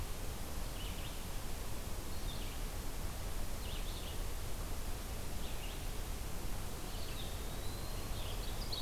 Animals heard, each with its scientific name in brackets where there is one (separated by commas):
Red-eyed Vireo (Vireo olivaceus), Eastern Wood-Pewee (Contopus virens)